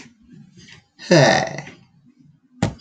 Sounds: Sigh